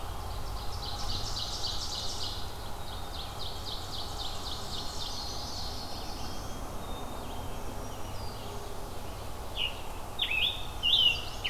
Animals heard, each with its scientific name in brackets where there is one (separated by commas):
Chestnut-sided Warbler (Setophaga pensylvanica), Red-eyed Vireo (Vireo olivaceus), Black-throated Green Warbler (Setophaga virens), Black-throated Blue Warbler (Setophaga caerulescens), Ovenbird (Seiurus aurocapilla), Black-capped Chickadee (Poecile atricapillus), Scarlet Tanager (Piranga olivacea)